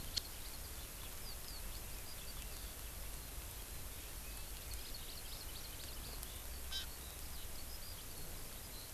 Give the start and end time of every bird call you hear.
0.1s-8.9s: Eurasian Skylark (Alauda arvensis)
4.8s-6.0s: Hawaii Amakihi (Chlorodrepanis virens)
6.7s-6.9s: Hawaii Amakihi (Chlorodrepanis virens)

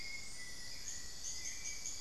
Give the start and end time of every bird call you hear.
0.0s-2.0s: Hauxwell's Thrush (Turdus hauxwelli)
0.0s-2.0s: Little Tinamou (Crypturellus soui)
0.0s-2.0s: unidentified bird

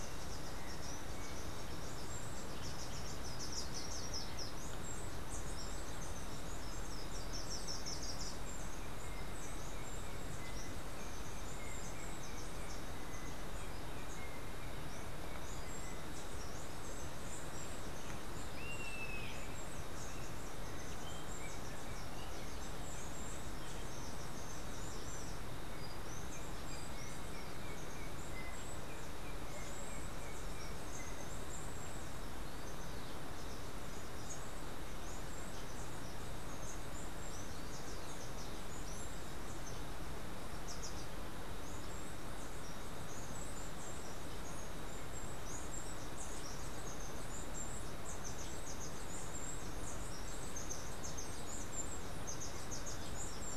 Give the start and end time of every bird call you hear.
0.0s-53.6s: Steely-vented Hummingbird (Saucerottia saucerottei)
3.0s-8.6s: Slate-throated Redstart (Myioborus miniatus)
18.3s-19.6s: Yellow-headed Caracara (Milvago chimachima)
25.5s-31.5s: Yellow-backed Oriole (Icterus chrysater)

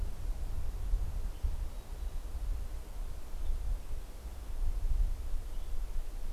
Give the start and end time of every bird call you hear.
0.0s-5.9s: Western Tanager (Piranga ludoviciana)

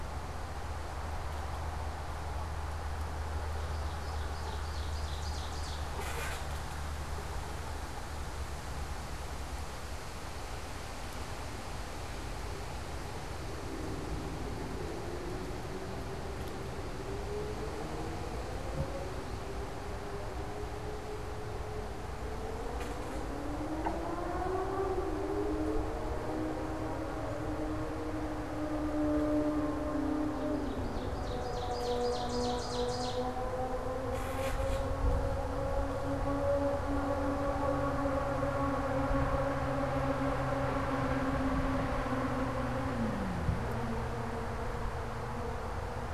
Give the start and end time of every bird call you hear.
3.5s-5.9s: Ovenbird (Seiurus aurocapilla)
30.2s-33.4s: Ovenbird (Seiurus aurocapilla)

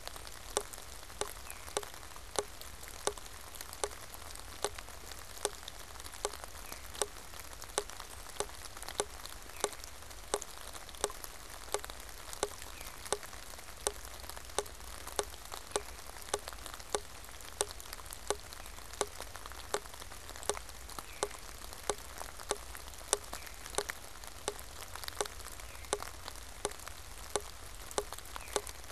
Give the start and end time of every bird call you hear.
1.3s-13.2s: Veery (Catharus fuscescens)
18.4s-28.9s: Veery (Catharus fuscescens)

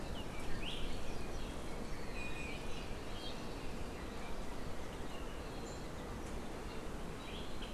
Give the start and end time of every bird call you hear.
1.9s-2.7s: Iiwi (Drepanis coccinea)

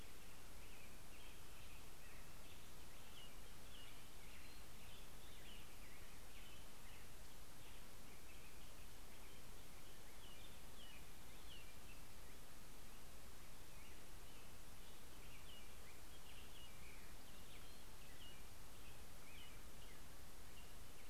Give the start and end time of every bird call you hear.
0.0s-12.3s: American Robin (Turdus migratorius)
0.1s-12.0s: Black-headed Grosbeak (Pheucticus melanocephalus)
13.9s-21.1s: Black-headed Grosbeak (Pheucticus melanocephalus)
14.8s-20.1s: American Robin (Turdus migratorius)

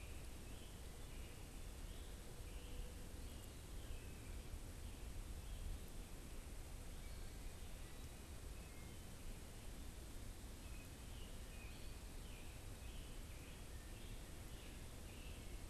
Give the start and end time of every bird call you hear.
0.0s-15.7s: unidentified bird

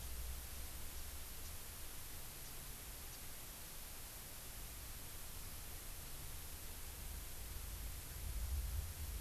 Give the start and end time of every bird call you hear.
2.5s-2.6s: House Finch (Haemorhous mexicanus)

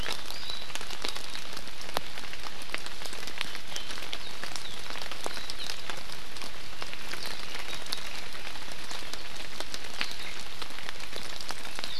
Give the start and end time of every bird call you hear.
0.3s-0.7s: Hawaii Amakihi (Chlorodrepanis virens)

